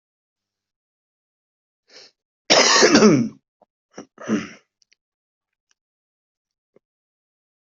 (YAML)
expert_labels:
- quality: good
  cough_type: wet
  dyspnea: false
  wheezing: false
  stridor: false
  choking: false
  congestion: false
  nothing: true
  diagnosis: healthy cough
  severity: pseudocough/healthy cough
age: 70
gender: male
respiratory_condition: false
fever_muscle_pain: false
status: COVID-19